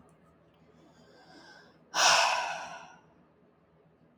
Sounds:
Sigh